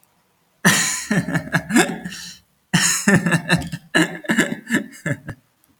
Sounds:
Laughter